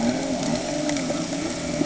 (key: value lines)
label: anthrophony, boat engine
recorder: HydroMoth